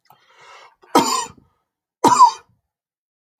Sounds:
Cough